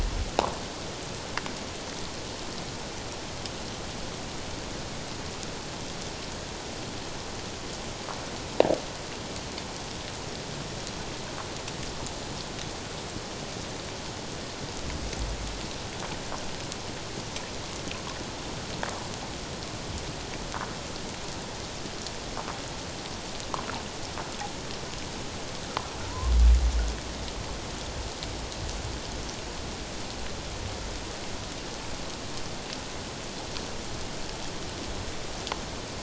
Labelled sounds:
26.0	26.3	humpback whale, 0.88 to 1.1 kHz

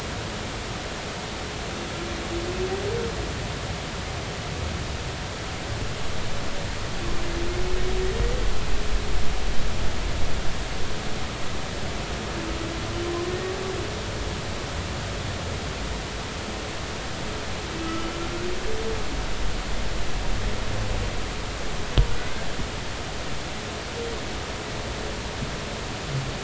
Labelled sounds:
13.3	13.5	humpback whale, 1.8 to 1.9 kHz
17.8	18.1	humpback whale, 1.2 to 1.4 kHz

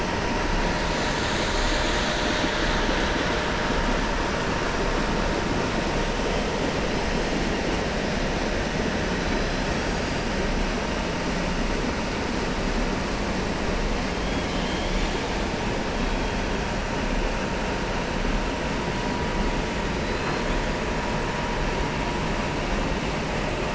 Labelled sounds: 14.2	15.3	killer whale, southern resident, 2.2 to 4.4 kHz
20.0	20.6	killer whale, southern resident, 3.2 to 5.0 kHz

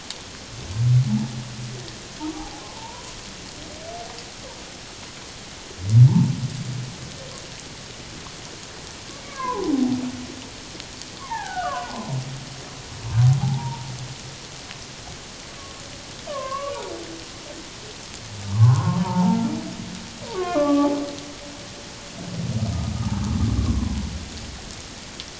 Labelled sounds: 2.6	3.0	humpback whale, 0.84 to 1.1 kHz
9.2	10.0	humpback whale, 0.78 to 2.3 kHz
11.2	12.1	humpback whale, 0.78 to 1.9 kHz
13.4	13.8	humpback whale, 0.78 to 1.0 kHz
15.6	15.8	humpback whale, 1.0 to 1.2 kHz
16.3	16.8	humpback whale, 1.0 to 1.2 kHz
18.4	19.5	humpback whale, 0.78 to 1.5 kHz
20.3	21.0	humpback whale, 0.81 to 2.6 kHz
23.6	23.9	humpback whale, 0.97 to 1.2 kHz

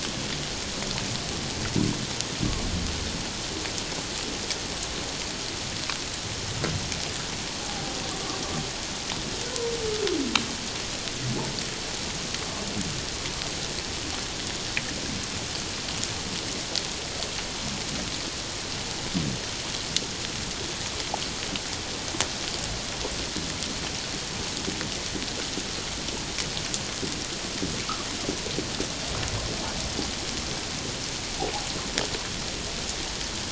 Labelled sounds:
7.6	7.9	humpback whale, 0.78 to 0.91 kHz

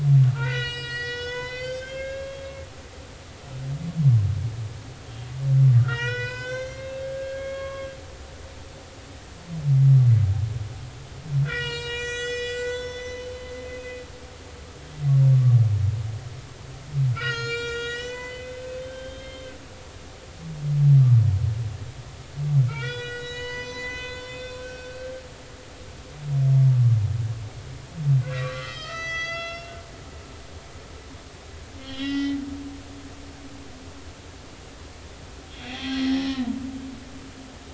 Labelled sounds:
0.3	2.5	humpback whale, 0.90 to 7.8 kHz
5.8	7.9	humpback whale, 0.90 to 7.6 kHz
11.4	14.0	humpback whale, 0.90 to 8.0 kHz
17.1	20.3	humpback whale, 1.3 to 7.6 kHz
21.0	21.2	humpback whale, 1.1 to 1.3 kHz
22.7	25.2	humpback whale, 0.93 to 6.9 kHz
28.3	29.8	humpback whale, 1.1 to 8.0 kHz
31.8	32.4	humpback whale, 1.3 to 5.7 kHz
35.5	36.5	humpback whale, 0.80 to 5.6 kHz
36.8	37.2	humpback whale, 4.0 to 4.4 kHz

